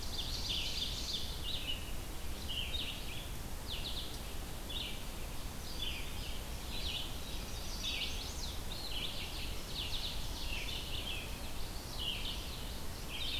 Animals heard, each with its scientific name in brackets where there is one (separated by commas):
Ovenbird (Seiurus aurocapilla), Red-eyed Vireo (Vireo olivaceus), Chestnut-sided Warbler (Setophaga pensylvanica)